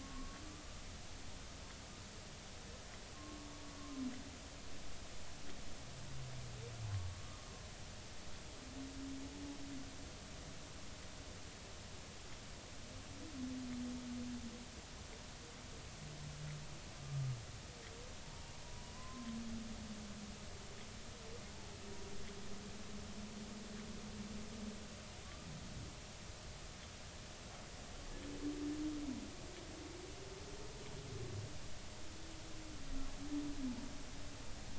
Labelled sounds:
0.0	0.4	humpback whale, 1.0 to 1.2 kHz
3.1	3.5	humpback whale, 1.0 to 1.2 kHz
18.7	19.3	humpback whale, 0.93 to 1.1 kHz
25.2	25.5	humpback whale, 1.0 to 1.2 kHz

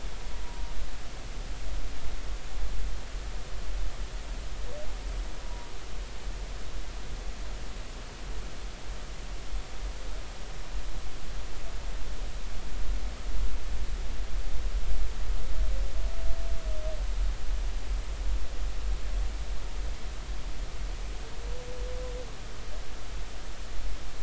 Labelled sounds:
5.4	5.7	humpback whale, 0.93 to 1.0 kHz

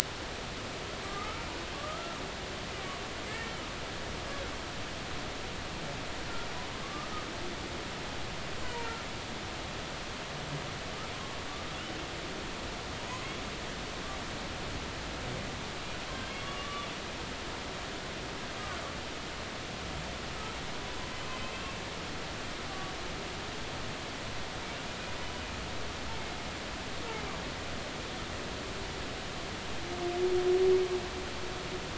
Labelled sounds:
1.0	1.5	humpback whale, 1.2 to 1.4 kHz
1.7	2.2	humpback whale, 1.0 to 1.4 kHz
3.2	3.5	humpback whale, 1.7 to 2.3 kHz
6.8	7.1	humpback whale, 1.1 to 1.3 kHz
8.6	8.9	humpback whale, 0.90 to 1.1 kHz
11.1	11.4	humpback whale, 0.99 to 1.1 kHz
16.2	16.9	humpback whale, 1.1 to 3.4 kHz
21.4	21.7	humpback whale, 3.0 to 3.3 kHz

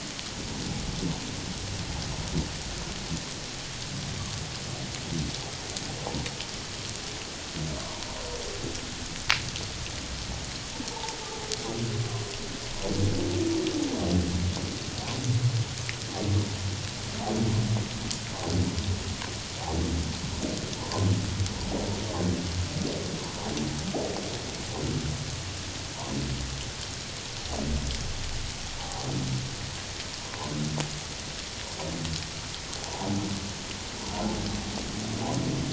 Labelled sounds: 7.8	8.1	humpback whale, 0.88 to 1.2 kHz
10.9	11.2	humpback whale, 0.78 to 0.97 kHz
28.8	29.1	humpback whale, 0.78 to 0.97 kHz
30.2	30.5	humpback whale, 0.78 to 1.1 kHz
32.8	33.1	humpback whale, 0.78 to 1.0 kHz

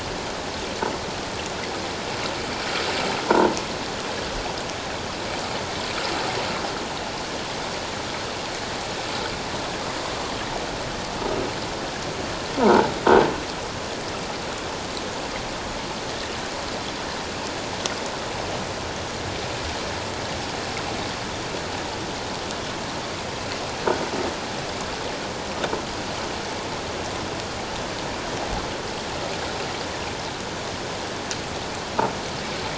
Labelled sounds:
12.6	12.9	croaking sound likely from a nearby submerged object, 0.81 to 1.1 kHz

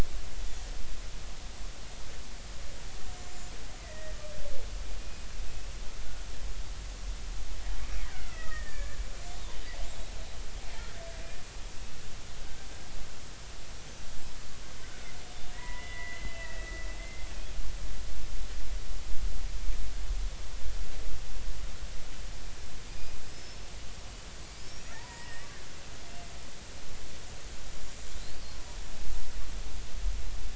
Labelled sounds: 3.2	4.2	killer whale, Bigg's (transient), 1.8 to 7.3 kHz
5.0	5.3	killer whale, Bigg's (transient), 2.4 to 2.5 kHz
8.1	9.0	killer whale, Bigg's (transient), 1.2 to 2.7 kHz
13.8	14.0	killer whale, Bigg's (transient), 5.7 to 6.2 kHz
15.5	16.7	killer whale, Bigg's (transient), 0.93 to 2.7 kHz
17.0	17.3	killer whale, Bigg's (transient), 2.0 to 2.1 kHz
22.9	23.6	killer whale, Bigg's (transient), 4.7 to 5.4 kHz
24.6	25.5	killer whale, Bigg's (transient), 0.83 to 6.0 kHz
28.2	28.5	killer whale, Bigg's (transient), 3.9 to 4.8 kHz

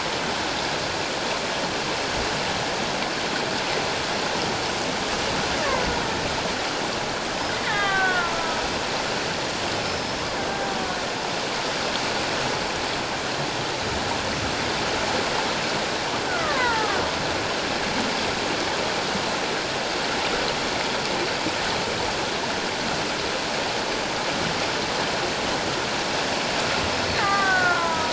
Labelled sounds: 7.6	8.6	killer whale, Bigg's (transient), 0.97 to 3.4 kHz
9.8	10.2	killer whale, Bigg's (transient), 5.1 to 5.4 kHz
16.3	17.0	killer whale, Bigg's (transient), 0.81 to 2.1 kHz
27.2	28.1	killer whale, Bigg's (transient), 0.78 to 2.1 kHz

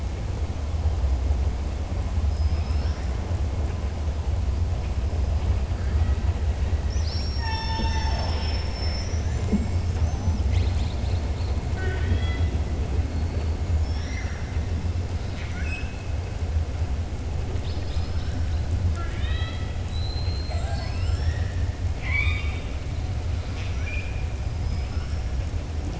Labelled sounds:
2.2	3.1	killer whale, southern resident, 1.3 to 5.8 kHz
11.6	12.5	killer whale, southern resident, 0.38 to 4.7 kHz
13.7	14.5	killer whale, southern resident, 1.4 to 6.8 kHz
15.2	16.0	killer whale, southern resident, 1.4 to 7.7 kHz
18.8	21.6	killer whale, southern resident, 0.67 to 7.6 kHz

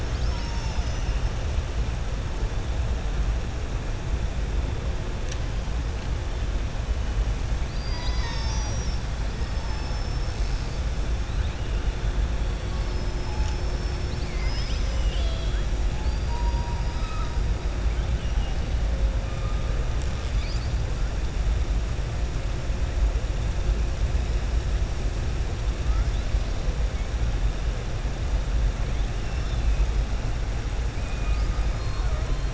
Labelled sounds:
0.0	1.2	killer whale, southern resident, 0.95 to 7.0 kHz
7.6	10.8	killer whale, southern resident, 0.88 to 6.3 kHz
15.9	16.7	killer whale, southern resident, 4.3 to 5.7 kHz
18.1	18.5	killer whale, southern resident, 2.8 to 3.5 kHz
31.2	32.1	killer whale, southern resident, 3.7 to 5.3 kHz

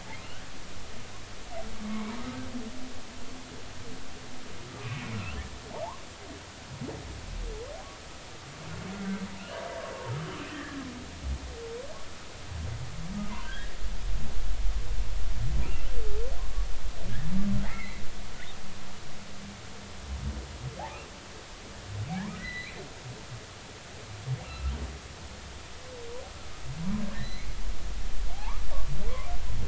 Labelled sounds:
0.2	0.5	humpback whale, 2.6 to 3.2 kHz
1.8	2.2	humpback whale, 0.90 to 2.3 kHz
4.8	5.4	humpback whale, 1.2 to 3.2 kHz
5.7	6.0	humpback whale, 0.80 to 1.2 kHz
9.4	9.6	humpback whale, 2.5 to 3.2 kHz
10.5	10.8	humpback whale, 1.6 to 2.0 kHz
13.4	13.7	humpback whale, 1.5 to 3.4 kHz
15.6	15.9	humpback whale, 2.3 to 2.9 kHz
16.4	16.7	humpback whale, 0.96 to 1.2 kHz
17.6	18.0	humpback whale, 1.8 to 2.4 kHz
22.4	22.8	humpback whale, 1.9 to 4.1 kHz
24.4	24.7	humpback whale, 1.2 to 2.9 kHz
27.1	27.5	humpback whale, 1.7 to 4.2 kHz
28.3	28.6	humpback whale, 0.80 to 1.3 kHz

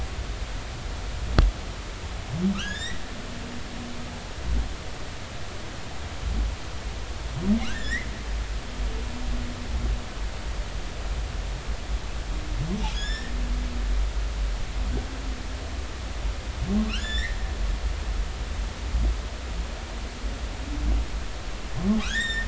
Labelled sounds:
2.5	3.0	humpback whale, 1.2 to 5.1 kHz
7.6	8.1	humpback whale, 1.2 to 7.3 kHz
12.9	13.3	humpback whale, 1.6 to 7.2 kHz
16.8	17.4	humpback whale, 1.0 to 7.2 kHz
22.0	22.4	humpback whale, 1.1 to 7.6 kHz

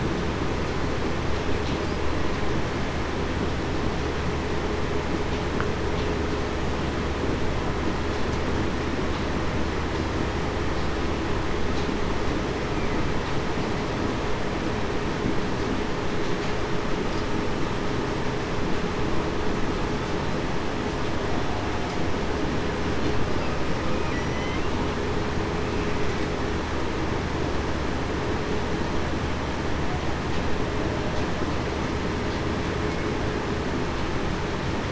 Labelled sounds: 24.1	24.5	killer whale, Bigg's (transient), 5.7 to 5.9 kHz

